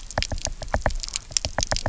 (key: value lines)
label: biophony, knock
recorder: SoundTrap 300